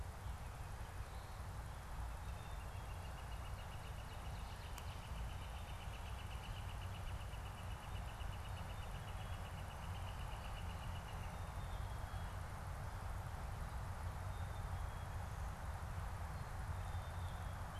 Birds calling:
Black-capped Chickadee (Poecile atricapillus), Northern Flicker (Colaptes auratus)

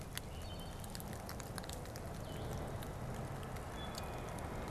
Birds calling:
Blue-headed Vireo (Vireo solitarius), Wood Thrush (Hylocichla mustelina)

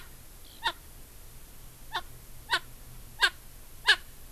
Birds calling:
Erckel's Francolin (Pternistis erckelii), Eurasian Skylark (Alauda arvensis)

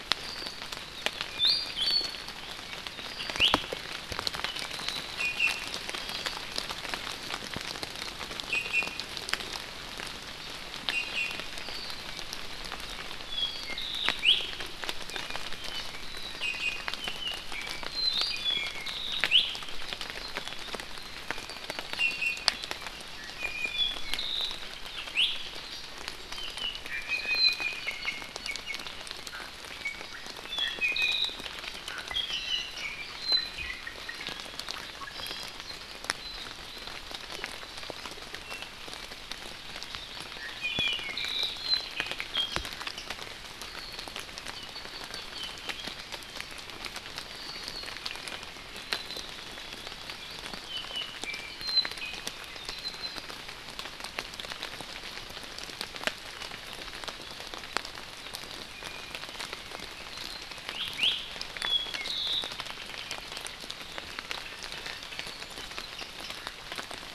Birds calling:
Apapane (Himatione sanguinea), Iiwi (Drepanis coccinea), Hawaii Amakihi (Chlorodrepanis virens), Omao (Myadestes obscurus)

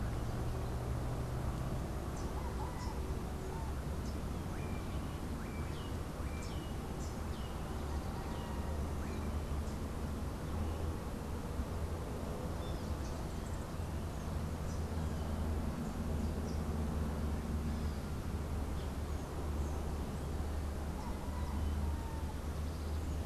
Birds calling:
Melodious Blackbird (Dives dives)

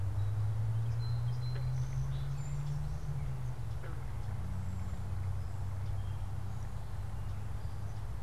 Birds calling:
Song Sparrow (Melospiza melodia), Cedar Waxwing (Bombycilla cedrorum)

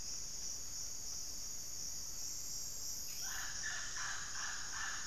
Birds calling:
Mealy Parrot (Amazona farinosa)

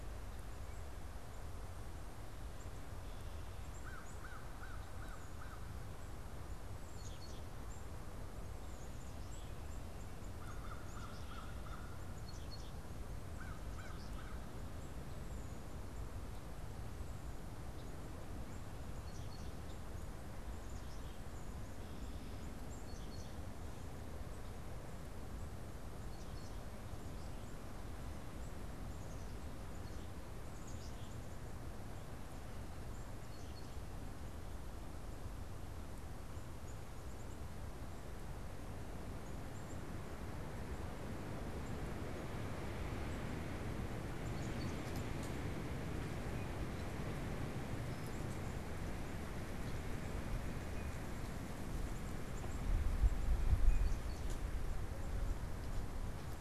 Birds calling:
American Crow (Corvus brachyrhynchos), Blue Jay (Cyanocitta cristata), Black-capped Chickadee (Poecile atricapillus)

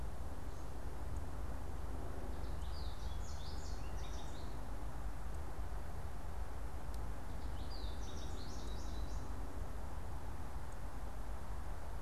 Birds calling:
American Goldfinch (Spinus tristis)

